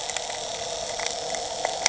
{"label": "anthrophony, boat engine", "recorder": "HydroMoth"}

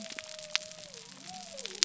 {"label": "biophony", "recorder": "SoundTrap 300"}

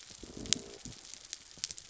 {"label": "biophony", "recorder": "SoundTrap 300"}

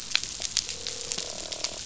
{"label": "biophony, croak", "recorder": "SoundTrap 500"}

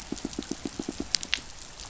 {"label": "biophony, pulse", "recorder": "SoundTrap 500"}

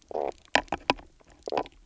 {"label": "biophony, knock croak", "recorder": "SoundTrap 300"}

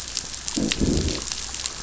{"label": "biophony", "recorder": "SoundTrap 500"}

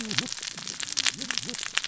{"label": "biophony, cascading saw", "recorder": "SoundTrap 600 or HydroMoth"}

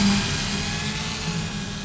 {"label": "anthrophony, boat engine", "recorder": "SoundTrap 500"}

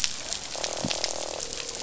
{"label": "biophony, croak", "recorder": "SoundTrap 500"}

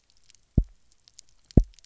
{"label": "biophony, double pulse", "recorder": "SoundTrap 300"}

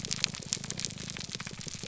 {"label": "biophony, grouper groan", "recorder": "SoundTrap 300"}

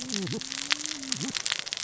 {"label": "biophony, cascading saw", "recorder": "SoundTrap 600 or HydroMoth"}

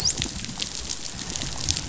{"label": "biophony, dolphin", "recorder": "SoundTrap 500"}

